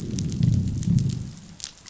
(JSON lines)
{"label": "biophony, growl", "recorder": "SoundTrap 500"}